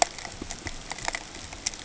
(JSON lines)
{"label": "ambient", "recorder": "HydroMoth"}